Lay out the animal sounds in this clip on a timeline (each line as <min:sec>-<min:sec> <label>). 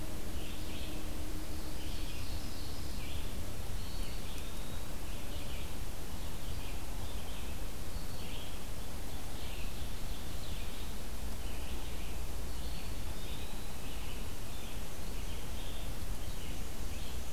0:00.0-0:17.3 Red-eyed Vireo (Vireo olivaceus)
0:01.4-0:03.1 Ovenbird (Seiurus aurocapilla)
0:03.7-0:05.0 Eastern Wood-Pewee (Contopus virens)
0:12.4-0:14.3 Eastern Wood-Pewee (Contopus virens)